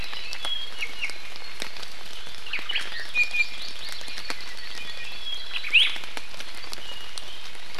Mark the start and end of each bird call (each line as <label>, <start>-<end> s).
Iiwi (Drepanis coccinea), 0.8-1.2 s
Omao (Myadestes obscurus), 2.5-3.1 s
Iiwi (Drepanis coccinea), 2.7-4.3 s
Apapane (Himatione sanguinea), 4.2-5.7 s
Iiwi (Drepanis coccinea), 5.7-6.0 s